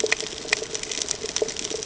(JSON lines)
{"label": "ambient", "recorder": "HydroMoth"}